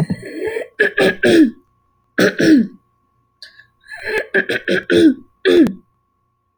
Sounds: Throat clearing